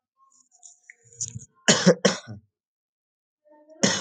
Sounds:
Cough